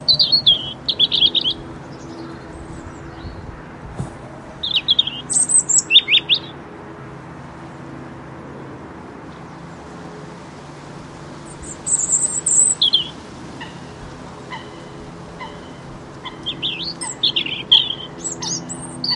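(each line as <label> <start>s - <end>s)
Birds chirping. 0.0s - 1.6s
Humming noise in the distance. 1.6s - 4.6s
A soft thump. 3.9s - 4.2s
Birds chirping. 4.5s - 6.7s
Humming noise in the distance. 6.5s - 11.6s
Birds chirping. 11.4s - 13.3s
Humming noise in the distance. 13.2s - 16.2s
A bird chirps in the distance. 13.5s - 19.0s
Birds chirping. 16.1s - 19.2s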